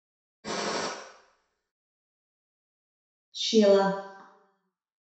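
First, you can hear gunfire. After that, someone says "Sheila."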